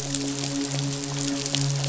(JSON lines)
{"label": "biophony, midshipman", "recorder": "SoundTrap 500"}